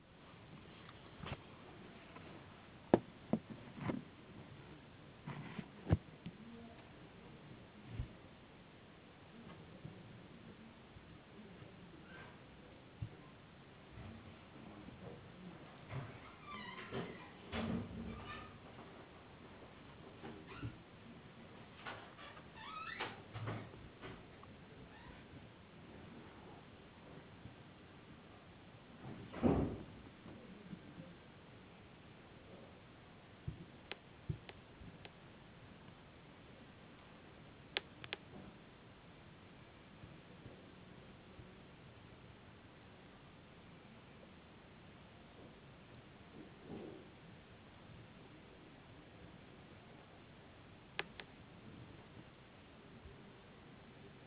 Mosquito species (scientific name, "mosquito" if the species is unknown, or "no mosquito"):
no mosquito